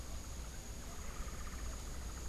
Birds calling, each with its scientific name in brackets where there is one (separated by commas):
Hoffmann's Woodpecker (Melanerpes hoffmannii)